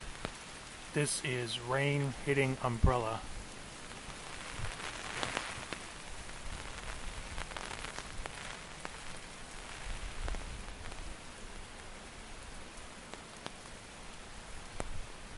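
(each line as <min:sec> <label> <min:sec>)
0:00.0 Soft rain hitting an umbrella repeatedly. 0:00.9
0:00.9 A man is speaking in English. 0:03.6
0:03.6 Rain hitting an umbrella. 0:13.5
0:13.6 Soft rain hitting an umbrella. 0:15.3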